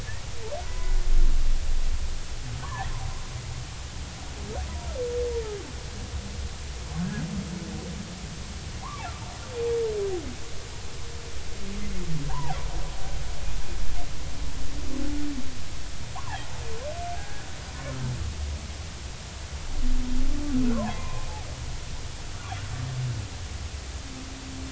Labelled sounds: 0.7	1.0	humpback whale, 0.96 to 2.0 kHz
2.6	2.9	humpback whale, 0.80 to 1.2 kHz
12.3	12.6	humpback whale, 0.80 to 1.1 kHz
15.0	15.3	humpback whale, 1.4 to 1.6 kHz
16.1	16.4	humpback whale, 0.80 to 1.2 kHz
17.2	17.4	humpback whale, 1.5 to 1.7 kHz
20.7	21.3	humpback whale, 0.80 to 2.6 kHz

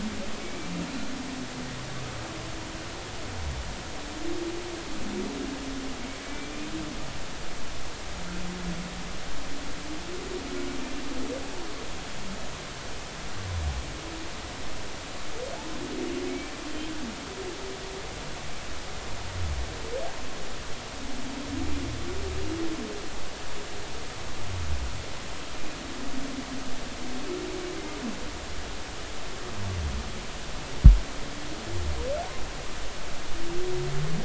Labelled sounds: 0.4	0.7	humpback whale, 2.2 to 2.4 kHz
6.3	6.5	humpback whale, 2.2 to 2.4 kHz
16.3	16.5	humpback whale, 2.1 to 2.4 kHz

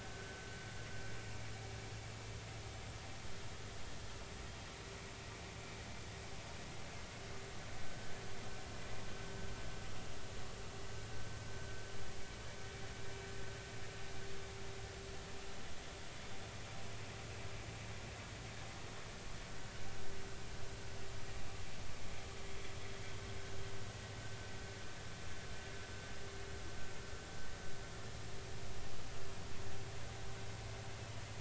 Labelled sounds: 7.8	8.1	vessel noise, 1.5 to 1.6 kHz

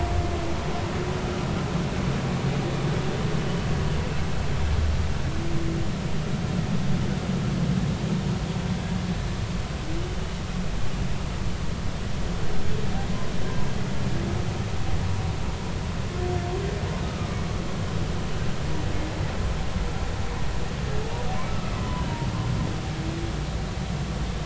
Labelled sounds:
21.5	22.1	humpback whale, 0.93 to 1.3 kHz

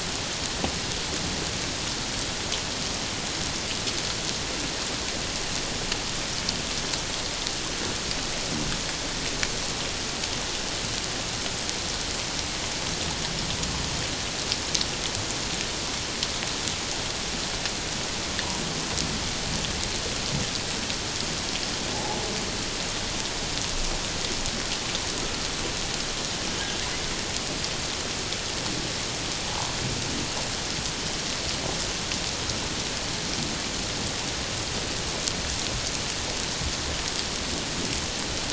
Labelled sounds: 21.9	22.2	humpback whale, 0.78 to 0.97 kHz
29.5	29.8	humpback whale, 0.78 to 1.1 kHz

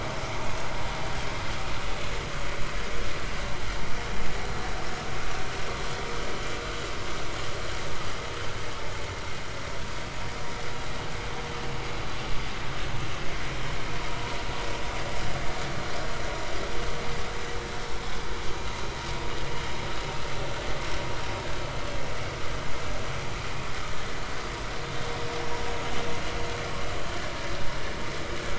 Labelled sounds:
14.1	14.3	vessel noise, 0.90 to 1.1 kHz

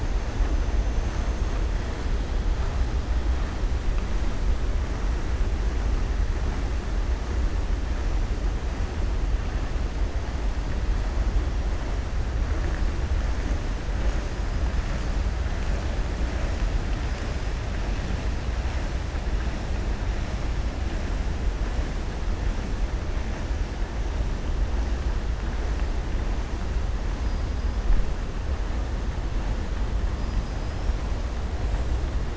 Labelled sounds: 30.1	30.9	killer whale, southern resident, 4.9 to 5.9 kHz

